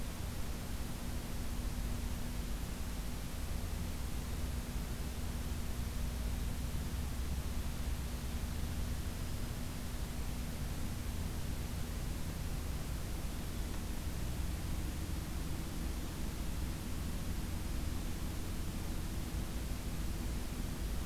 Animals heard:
forest ambience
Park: Acadia National Park